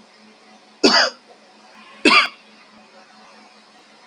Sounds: Cough